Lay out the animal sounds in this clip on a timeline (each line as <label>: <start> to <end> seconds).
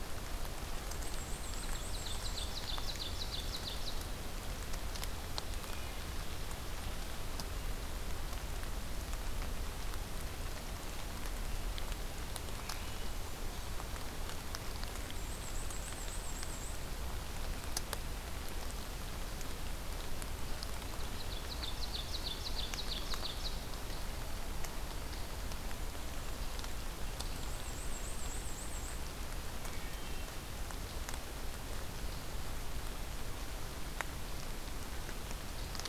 Black-and-white Warbler (Mniotilta varia): 1.0 to 2.5 seconds
Ovenbird (Seiurus aurocapilla): 1.6 to 4.1 seconds
Wood Thrush (Hylocichla mustelina): 12.5 to 13.1 seconds
Black-and-white Warbler (Mniotilta varia): 15.2 to 16.8 seconds
Ovenbird (Seiurus aurocapilla): 20.7 to 23.7 seconds
Black-and-white Warbler (Mniotilta varia): 27.4 to 29.1 seconds
Wood Thrush (Hylocichla mustelina): 29.5 to 30.6 seconds